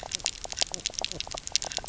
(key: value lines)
label: biophony, knock croak
recorder: SoundTrap 300